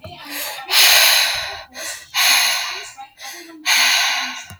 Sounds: Sigh